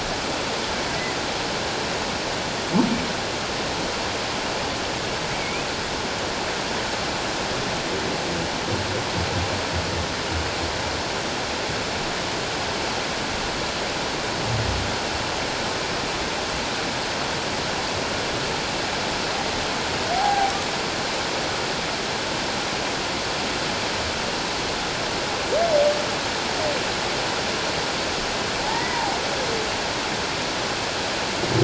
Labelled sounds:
5.3	5.7	humpback whale, 2.1 to 2.7 kHz
20.1	20.5	humpback whale, 0.78 to 0.88 kHz
28.7	29.1	humpback whale, 0.78 to 2.1 kHz

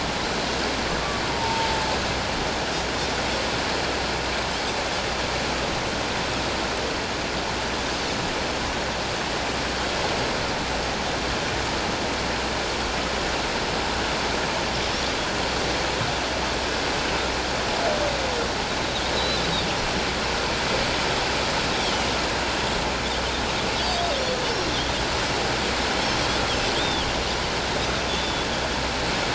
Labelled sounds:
1.3	1.8	humpback whale, 0.84 to 0.97 kHz
19.1	19.4	Pacific white-sided dolphin, 3.8 to 4.1 kHz
21.8	22.1	Pacific white-sided dolphin, 2.8 to 3.6 kHz
26.8	27.1	Pacific white-sided dolphin, 2.9 to 3.7 kHz
28.1	28.5	Pacific white-sided dolphin, 3.3 to 3.6 kHz

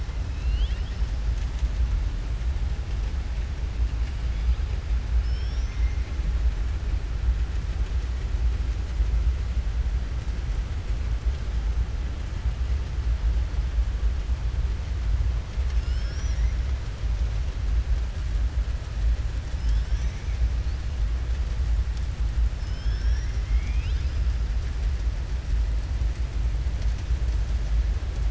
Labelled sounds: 0.3	1.1	killer whale, southern resident, 1.9 to 5.5 kHz
5.1	6.1	killer whale, southern resident, 2.0 to 6.2 kHz

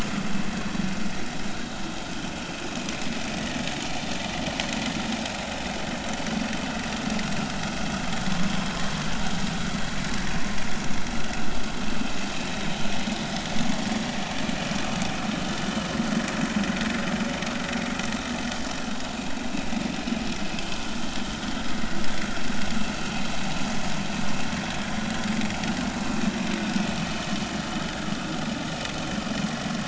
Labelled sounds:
8.3	9.0	vessel noise, 0.90 to 1.2 kHz

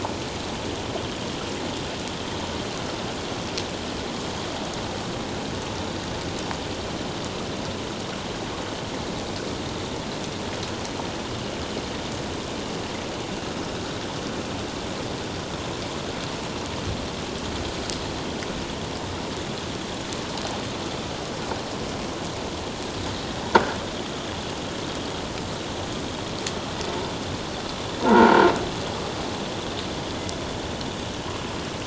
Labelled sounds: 28.0	28.5	croaking sound likely from a nearby submerged object, 0.84 to 1.6 kHz

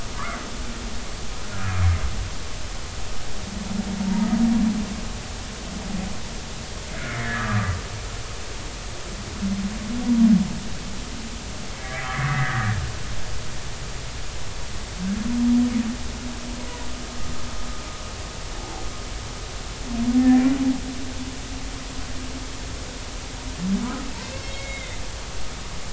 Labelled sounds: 7.2	7.8	humpback whale, 1.1 to 2.0 kHz
11.8	12.7	humpback whale, 1.1 to 2.0 kHz
24.2	25.0	humpback whale, 1.9 to 4.4 kHz

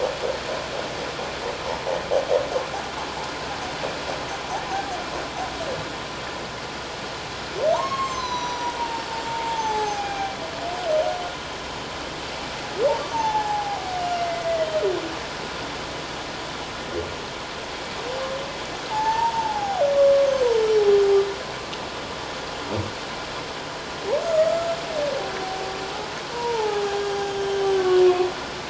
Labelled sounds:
7.7	10.4	humpback whale, 0.78 to 6.6 kHz
13.1	14.7	humpback whale, 0.78 to 6.4 kHz
18.9	19.8	humpback whale, 0.78 to 1.8 kHz
20.6	21.2	humpback whale, 5.4 to 6.9 kHz
24.2	24.7	humpback whale, 1.2 to 1.4 kHz
26.3	28.3	humpback whale, 0.78 to 6.4 kHz

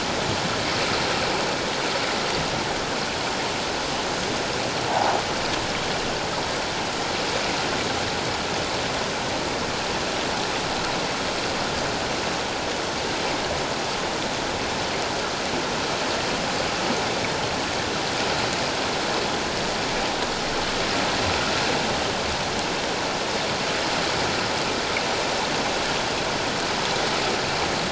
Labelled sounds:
4.9	5.1	croaking sound likely from a nearby submerged object, 0.78 to 1.0 kHz

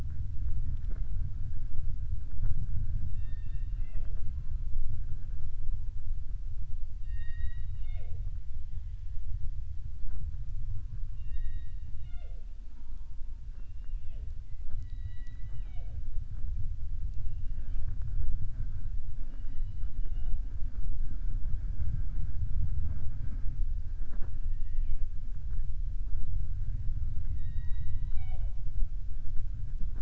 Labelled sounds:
6.9	8.3	killer whale, southern resident, 0.46 to 4.7 kHz
13.4	14.3	killer whale, southern resident, 0.36 to 3.7 kHz

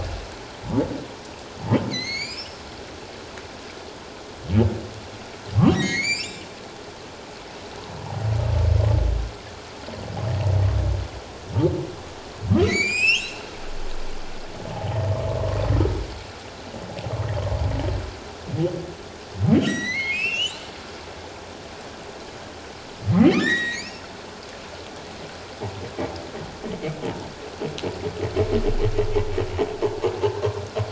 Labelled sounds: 1.9	2.6	humpback whale, 1.9 to 7.6 kHz
5.7	6.5	humpback whale, 1.8 to 8.0 kHz
8.0	8.3	humpback whale, 0.78 to 1.0 kHz
12.6	13.4	humpback whale, 1.9 to 8.0 kHz
19.6	20.7	humpback whale, 1.8 to 8.0 kHz
23.4	24.0	humpback whale, 1.7 to 7.7 kHz

